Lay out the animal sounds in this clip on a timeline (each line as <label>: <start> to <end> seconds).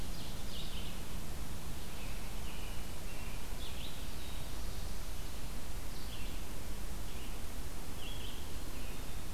Ovenbird (Seiurus aurocapilla): 0.0 to 0.7 seconds
Red-eyed Vireo (Vireo olivaceus): 0.0 to 8.5 seconds
American Robin (Turdus migratorius): 1.8 to 4.0 seconds
Black-throated Blue Warbler (Setophaga caerulescens): 3.6 to 5.4 seconds
American Robin (Turdus migratorius): 8.6 to 9.3 seconds